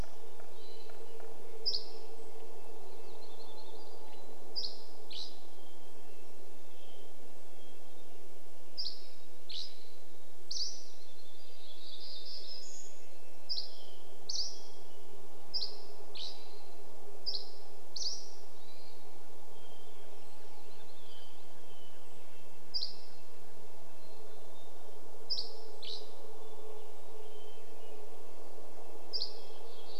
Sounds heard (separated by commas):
Red-breasted Nuthatch song, Dusky Flycatcher song, Hermit Thrush call, Mountain Chickadee song, airplane, woodpecker drumming, Hermit Thrush song, warbler song